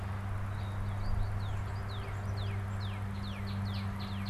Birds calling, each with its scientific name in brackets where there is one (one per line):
Red-winged Blackbird (Agelaius phoeniceus)
American Goldfinch (Spinus tristis)
Northern Cardinal (Cardinalis cardinalis)